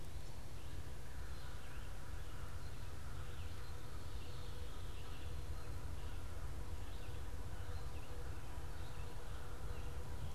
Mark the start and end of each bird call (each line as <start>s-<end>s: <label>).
0.0s-10.3s: American Crow (Corvus brachyrhynchos)
0.2s-10.3s: Red-eyed Vireo (Vireo olivaceus)
3.7s-10.3s: Veery (Catharus fuscescens)